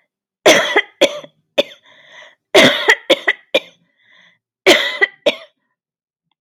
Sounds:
Cough